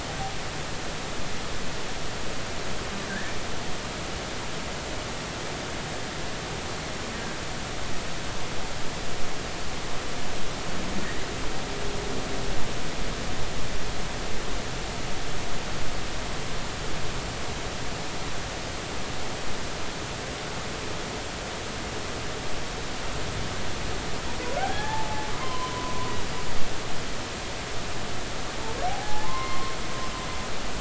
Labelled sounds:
24.6	25.9	humpback whale, 0.80 to 3.5 kHz
28.9	29.7	humpback whale, 0.80 to 2.1 kHz

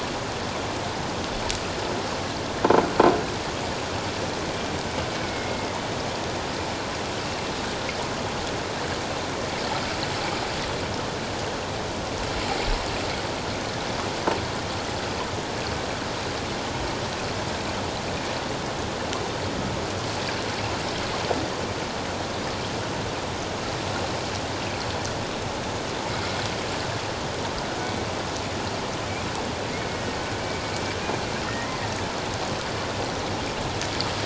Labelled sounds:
5.1	5.7	killer whale, 2.1 to 2.3 kHz
26.1	26.3	killer whale, Bigg's (transient), 2.1 to 2.2 kHz
27.8	28.1	killer whale, Bigg's (transient), 2.2 to 2.3 kHz
31.5	31.8	killer whale, Bigg's (transient), 1.8 to 2.1 kHz

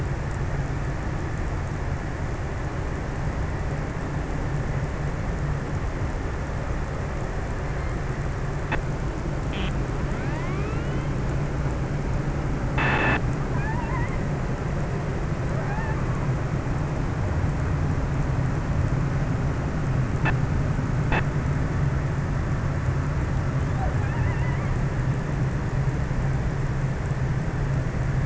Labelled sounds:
13.3	16.8	killer whale, offshore, 0.24 to 2.6 kHz
23.1	25.2	killer whale, offshore, 0.32 to 2.9 kHz

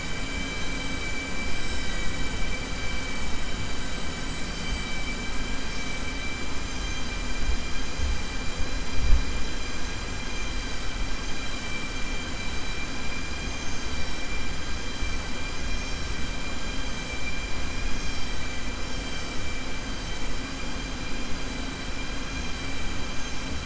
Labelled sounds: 0.2	0.9	vessel noise, 1.6 to 4.9 kHz

